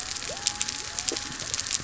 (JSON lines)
{"label": "biophony", "recorder": "SoundTrap 300"}